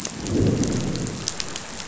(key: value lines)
label: biophony, growl
recorder: SoundTrap 500